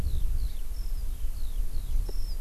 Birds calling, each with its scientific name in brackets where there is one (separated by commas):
Eurasian Skylark (Alauda arvensis)